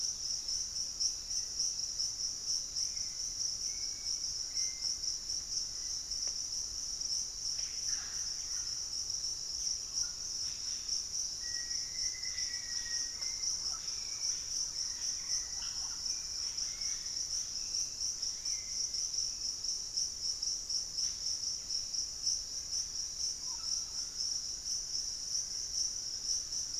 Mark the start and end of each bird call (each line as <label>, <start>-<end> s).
Hauxwell's Thrush (Turdus hauxwelli), 0.0-6.5 s
Yellow-rumped Cacique (Cacicus cela), 7.4-17.5 s
Pygmy Antwren (Myrmotherula brachyura), 9.6-10.4 s
Black-faced Antthrush (Formicarius analis), 11.1-13.9 s
Hauxwell's Thrush (Turdus hauxwelli), 12.4-19.2 s
Thrush-like Wren (Campylorhynchus turdinus), 12.5-16.8 s
unidentified bird, 20.8-21.5 s
Russet-backed Oropendola (Psarocolius angustifrons), 23.4-24.3 s